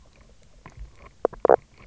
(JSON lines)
{"label": "biophony, knock croak", "recorder": "SoundTrap 300"}